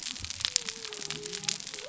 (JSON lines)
{"label": "biophony", "recorder": "SoundTrap 300"}